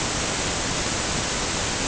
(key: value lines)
label: ambient
recorder: HydroMoth